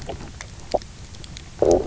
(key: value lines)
label: biophony, low growl
recorder: SoundTrap 300